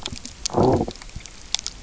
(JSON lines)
{"label": "biophony, low growl", "recorder": "SoundTrap 300"}